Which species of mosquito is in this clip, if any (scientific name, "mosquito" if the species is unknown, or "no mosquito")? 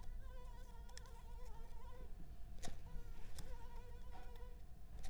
Anopheles arabiensis